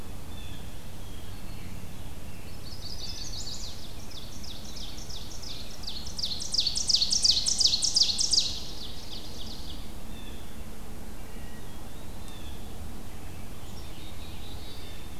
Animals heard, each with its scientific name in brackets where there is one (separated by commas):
Black-capped Chickadee (Poecile atricapillus), Ovenbird (Seiurus aurocapilla), Black-throated Blue Warbler (Setophaga caerulescens), Blue Jay (Cyanocitta cristata), Wood Thrush (Hylocichla mustelina), Chestnut-sided Warbler (Setophaga pensylvanica), Eastern Wood-Pewee (Contopus virens), Black-throated Green Warbler (Setophaga virens)